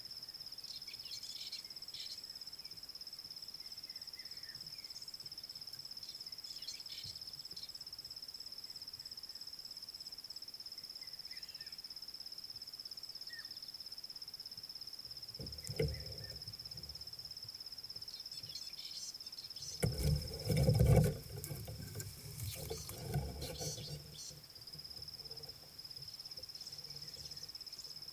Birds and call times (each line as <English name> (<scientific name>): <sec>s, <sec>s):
Fork-tailed Drongo (Dicrurus adsimilis): 1.6s, 6.9s, 18.9s, 23.8s